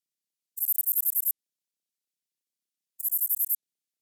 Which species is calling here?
Sorapagus catalaunicus